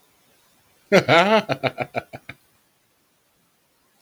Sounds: Laughter